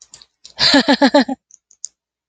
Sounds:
Laughter